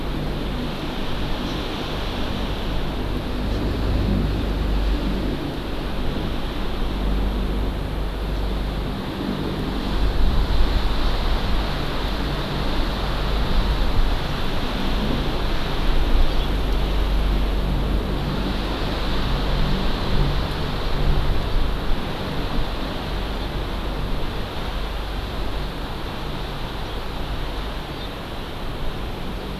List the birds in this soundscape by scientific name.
Chlorodrepanis virens